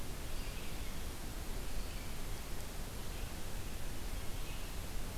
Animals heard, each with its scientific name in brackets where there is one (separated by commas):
Red-eyed Vireo (Vireo olivaceus)